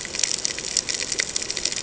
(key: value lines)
label: ambient
recorder: HydroMoth